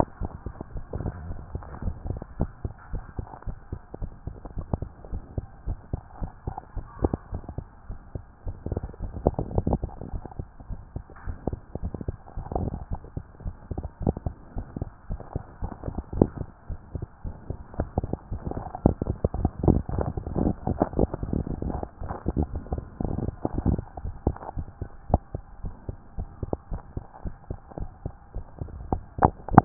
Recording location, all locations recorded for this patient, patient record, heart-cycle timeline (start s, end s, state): tricuspid valve (TV)
aortic valve (AV)+pulmonary valve (PV)+tricuspid valve (TV)+mitral valve (MV)
#Age: Child
#Sex: Male
#Height: 136.0 cm
#Weight: 31.3 kg
#Pregnancy status: False
#Murmur: Present
#Murmur locations: aortic valve (AV)+pulmonary valve (PV)
#Most audible location: pulmonary valve (PV)
#Systolic murmur timing: Early-systolic
#Systolic murmur shape: Plateau
#Systolic murmur grading: I/VI
#Systolic murmur pitch: Low
#Systolic murmur quality: Harsh
#Diastolic murmur timing: nan
#Diastolic murmur shape: nan
#Diastolic murmur grading: nan
#Diastolic murmur pitch: nan
#Diastolic murmur quality: nan
#Outcome: Normal
#Campaign: 2014 screening campaign
0.00	1.84	unannotated
1.84	1.96	S1
1.96	2.08	systole
2.08	2.20	S2
2.20	2.38	diastole
2.38	2.50	S1
2.50	2.64	systole
2.64	2.72	S2
2.72	2.92	diastole
2.92	3.04	S1
3.04	3.18	systole
3.18	3.26	S2
3.26	3.46	diastole
3.46	3.56	S1
3.56	3.72	systole
3.72	3.80	S2
3.80	4.00	diastole
4.00	4.10	S1
4.10	4.26	systole
4.26	4.36	S2
4.36	4.56	diastole
4.56	4.66	S1
4.66	4.80	systole
4.80	4.88	S2
4.88	5.12	diastole
5.12	5.22	S1
5.22	5.36	systole
5.36	5.46	S2
5.46	5.66	diastole
5.66	5.78	S1
5.78	5.92	systole
5.92	6.00	S2
6.00	6.20	diastole
6.20	6.30	S1
6.30	6.46	systole
6.46	6.56	S2
6.56	6.76	diastole
6.76	6.86	S1
6.86	7.02	systole
7.02	7.14	S2
7.14	7.32	diastole
7.32	7.42	S1
7.42	7.58	systole
7.58	7.66	S2
7.66	7.88	diastole
7.88	7.98	S1
7.98	8.14	systole
8.14	8.22	S2
8.22	8.46	diastole
8.46	29.65	unannotated